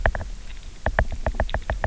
{"label": "biophony, knock", "recorder": "SoundTrap 300"}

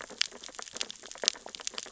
{"label": "biophony, sea urchins (Echinidae)", "recorder": "SoundTrap 600 or HydroMoth"}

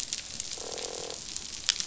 {"label": "biophony, croak", "recorder": "SoundTrap 500"}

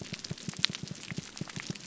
{"label": "biophony", "recorder": "SoundTrap 300"}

